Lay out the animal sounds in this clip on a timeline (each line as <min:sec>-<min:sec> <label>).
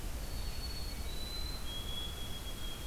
0:00.0-0:02.9 White-throated Sparrow (Zonotrichia albicollis)